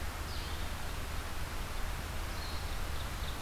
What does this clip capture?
Red-eyed Vireo, Ovenbird